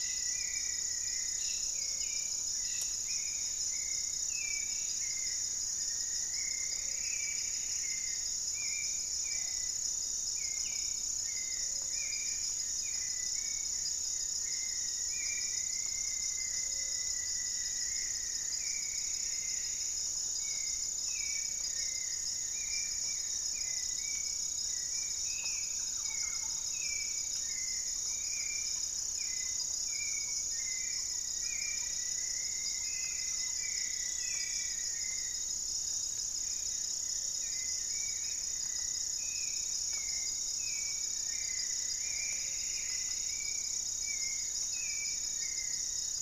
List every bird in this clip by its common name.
Rufous-fronted Antthrush, Gray-fronted Dove, Hauxwell's Thrush, Plumbeous Antbird, Goeldi's Antbird, Thrush-like Wren, unidentified bird